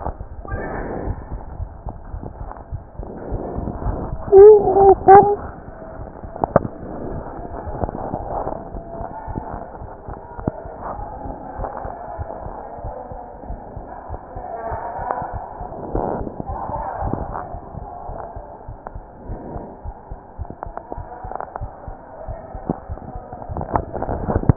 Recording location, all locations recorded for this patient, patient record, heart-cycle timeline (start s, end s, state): aortic valve (AV)
aortic valve (AV)+pulmonary valve (PV)+tricuspid valve (TV)+mitral valve (MV)
#Age: Child
#Sex: Male
#Height: 109.0 cm
#Weight: 25.5 kg
#Pregnancy status: False
#Murmur: Absent
#Murmur locations: nan
#Most audible location: nan
#Systolic murmur timing: nan
#Systolic murmur shape: nan
#Systolic murmur grading: nan
#Systolic murmur pitch: nan
#Systolic murmur quality: nan
#Diastolic murmur timing: nan
#Diastolic murmur shape: nan
#Diastolic murmur grading: nan
#Diastolic murmur pitch: nan
#Diastolic murmur quality: nan
#Outcome: Normal
#Campaign: 2015 screening campaign
0.00	18.04	unannotated
18.04	18.20	S1
18.20	18.34	systole
18.34	18.46	S2
18.46	18.66	diastole
18.66	18.78	S1
18.78	18.93	systole
18.93	19.06	S2
19.06	19.26	diastole
19.26	19.40	S1
19.40	19.52	systole
19.52	19.66	S2
19.66	19.83	diastole
19.83	19.96	S1
19.96	20.08	systole
20.08	20.18	S2
20.18	20.36	diastole
20.36	20.48	S1
20.48	20.62	systole
20.62	20.74	S2
20.74	20.96	diastole
20.96	21.08	S1
21.08	21.22	systole
21.22	21.34	S2
21.34	21.58	diastole
21.58	21.72	S1
21.72	21.85	systole
21.85	22.00	S2
22.00	22.26	diastole
22.26	22.38	S1
22.38	22.52	systole
22.52	22.66	S2
22.66	22.87	diastole
22.87	23.00	S1
23.00	23.13	systole
23.13	23.26	S2
23.26	23.48	diastole
23.48	23.58	S1
23.58	24.56	unannotated